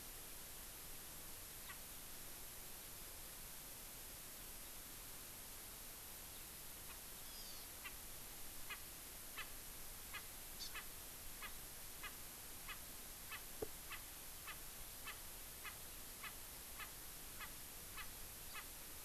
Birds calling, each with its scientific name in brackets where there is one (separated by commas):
Erckel's Francolin (Pternistis erckelii), Hawaii Amakihi (Chlorodrepanis virens)